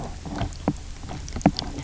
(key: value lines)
label: biophony, knock croak
recorder: SoundTrap 300